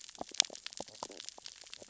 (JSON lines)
{"label": "biophony, stridulation", "recorder": "SoundTrap 600 or HydroMoth"}